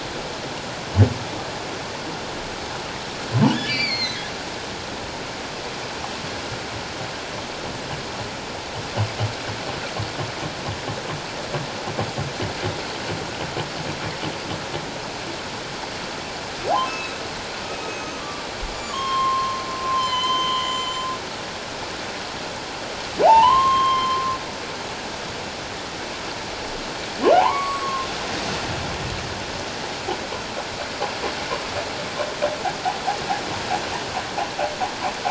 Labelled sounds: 3.6	4.3	humpback whale, 1.8 to 6.5 kHz
16.8	21.1	humpback whale, 0.94 to 7.3 kHz
23.2	24.2	humpback whale, 0.78 to 6.4 kHz
27.3	28.1	humpback whale, 0.78 to 7.8 kHz

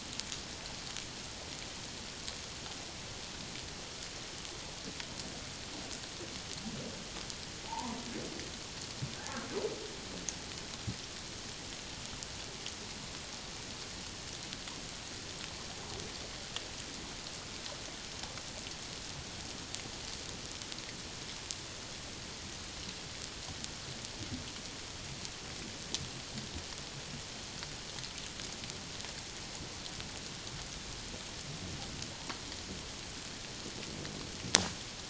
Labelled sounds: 7.7	8.0	humpback whale, 0.78 to 1.1 kHz
9.2	9.5	humpback whale, 1.5 to 1.8 kHz

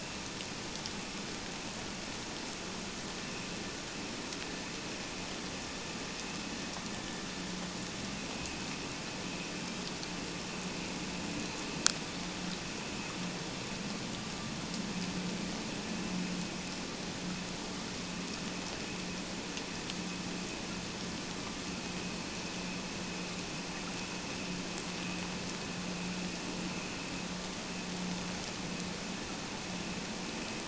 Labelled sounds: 8.3	8.6	vessel noise, 2.5 to 2.8 kHz

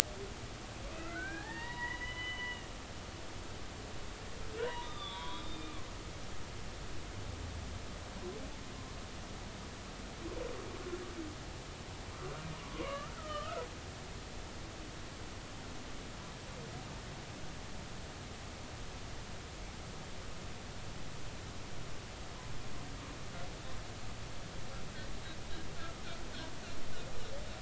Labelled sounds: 1.0	2.7	humpback whale, 0.80 to 4.0 kHz
4.5	5.8	humpback whale, 0.90 to 3.9 kHz
12.6	13.7	humpback whale, 0.96 to 3.2 kHz
25.7	26.0	humpback whale, 1.2 to 1.5 kHz

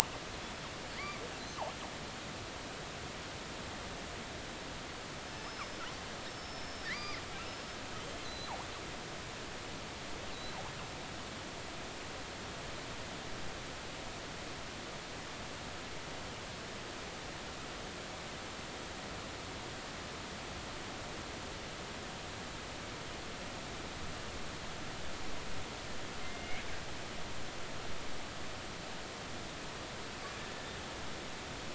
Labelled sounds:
1.0	1.2	killer whale, northern resident, G clan, 2.0 to 2.4 kHz
5.3	5.7	killer whale, northern resident, G clan, 5.2 to 5.3 kHz
6.3	7.2	killer whale, northern resident, G clan, 1.7 to 5.5 kHz
8.2	8.5	killer whale, northern resident, G clan, 3.9 to 4.3 kHz
26.2	26.6	killer whale, northern resident, G clan, 2.0 to 2.4 kHz

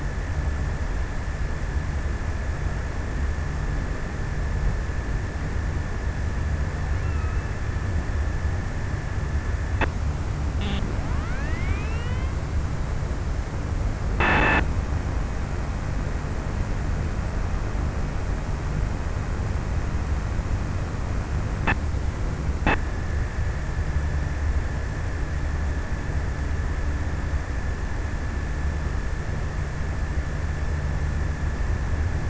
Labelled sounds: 6.6	8.0	killer whale, offshore, 1.0 to 2.9 kHz

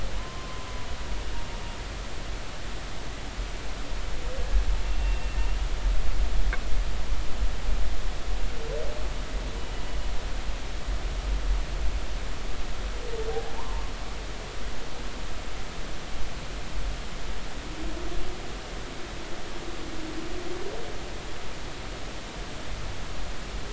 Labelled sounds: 0.1	0.7	humpback whale, 0.93 to 1.1 kHz
5.0	5.4	humpback whale, 2.7 to 2.8 kHz
13.6	13.9	humpback whale, 0.86 to 1.2 kHz

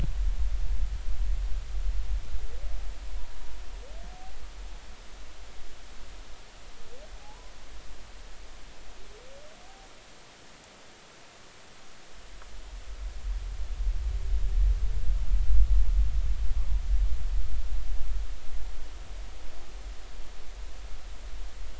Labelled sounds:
7.2	7.5	humpback whale, 0.80 to 1.1 kHz

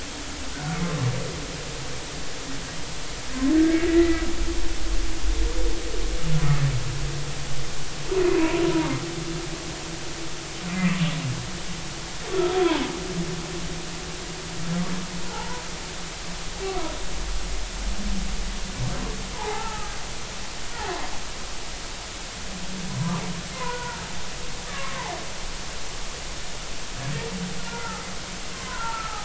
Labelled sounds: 3.6	4.3	humpback whale, 1.5 to 2.1 kHz
8.2	8.9	humpback whale, 0.80 to 2.6 kHz
15.3	15.6	humpback whale, 0.80 to 1.1 kHz
19.3	19.9	humpback whale, 0.80 to 1.4 kHz
23.5	25.2	humpback whale, 0.80 to 1.5 kHz
27.7	29.2	humpback whale, 0.80 to 1.6 kHz

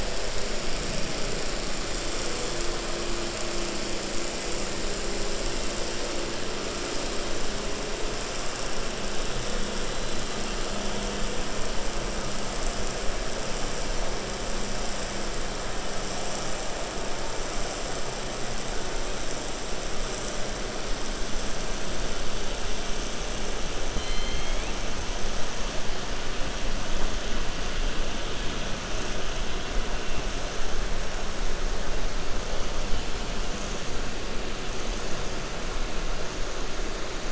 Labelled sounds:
23.9	24.7	killer whale, 2.0 to 4.3 kHz

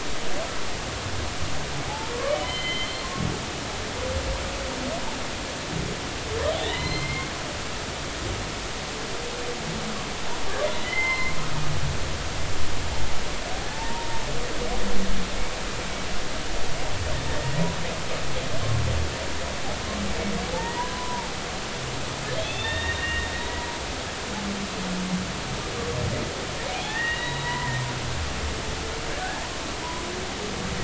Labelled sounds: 1.9	3.9	humpback whale, 0.80 to 4.3 kHz
6.5	7.3	humpback whale, 0.90 to 4.2 kHz
10.8	11.4	humpback whale, 0.80 to 4.2 kHz
13.7	14.1	humpback whale, 0.83 to 0.99 kHz
17.4	17.6	humpback whale, 1.8 to 1.9 kHz
20.5	21.4	humpback whale, 0.80 to 2.0 kHz
22.4	23.3	humpback whale, 1.7 to 3.8 kHz
26.7	27.8	humpback whale, 0.80 to 3.9 kHz

